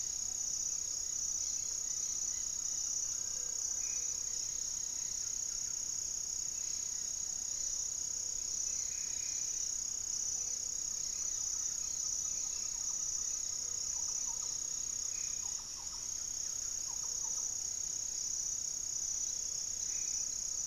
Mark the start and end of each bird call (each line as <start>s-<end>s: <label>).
0.0s-20.7s: Gray-fronted Dove (Leptotila rufaxilla)
0.7s-20.7s: Cobalt-winged Parakeet (Brotogeris cyanoptera)
0.9s-5.1s: Great Antshrike (Taraba major)
2.3s-4.4s: Little Tinamou (Crypturellus soui)
3.5s-4.3s: Black-faced Antthrush (Formicarius analis)
4.8s-6.0s: Buff-breasted Wren (Cantorchilus leucotis)
8.8s-9.5s: Black-faced Antthrush (Formicarius analis)
10.1s-15.9s: Great Antshrike (Taraba major)
11.2s-17.8s: Thrush-like Wren (Campylorhynchus turdinus)
14.8s-20.3s: Black-faced Antthrush (Formicarius analis)
16.1s-20.7s: Buff-breasted Wren (Cantorchilus leucotis)